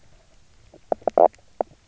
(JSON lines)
{"label": "biophony, knock croak", "recorder": "SoundTrap 300"}